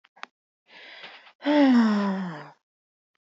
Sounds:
Sigh